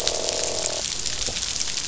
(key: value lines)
label: biophony, croak
recorder: SoundTrap 500